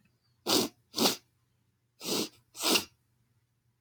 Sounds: Sniff